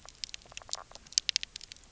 {"label": "biophony, knock croak", "recorder": "SoundTrap 300"}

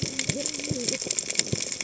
{"label": "biophony, cascading saw", "recorder": "HydroMoth"}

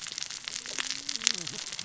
{"label": "biophony, cascading saw", "recorder": "SoundTrap 600 or HydroMoth"}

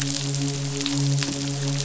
{"label": "biophony, midshipman", "recorder": "SoundTrap 500"}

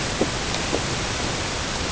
{"label": "ambient", "recorder": "HydroMoth"}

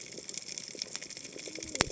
{"label": "biophony, cascading saw", "recorder": "HydroMoth"}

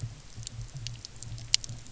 {"label": "anthrophony, boat engine", "recorder": "SoundTrap 300"}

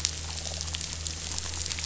{"label": "anthrophony, boat engine", "recorder": "SoundTrap 500"}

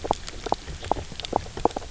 {"label": "biophony, knock croak", "recorder": "SoundTrap 300"}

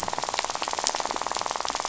{"label": "biophony, rattle", "recorder": "SoundTrap 500"}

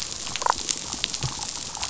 {"label": "biophony, damselfish", "recorder": "SoundTrap 500"}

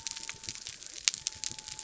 {"label": "biophony", "recorder": "SoundTrap 300"}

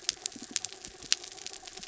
{"label": "anthrophony, mechanical", "recorder": "SoundTrap 300"}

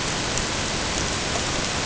{"label": "ambient", "recorder": "HydroMoth"}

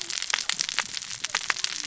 {"label": "biophony, cascading saw", "recorder": "SoundTrap 600 or HydroMoth"}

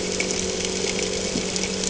{"label": "anthrophony, boat engine", "recorder": "HydroMoth"}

